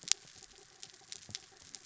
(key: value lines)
label: anthrophony, mechanical
recorder: SoundTrap 300